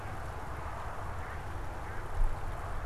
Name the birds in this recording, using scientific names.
Anas platyrhynchos